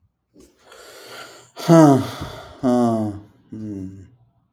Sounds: Sigh